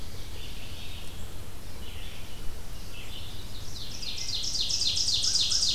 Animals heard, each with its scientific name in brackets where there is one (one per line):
Red-eyed Vireo (Vireo olivaceus)
American Crow (Corvus brachyrhynchos)
Ovenbird (Seiurus aurocapilla)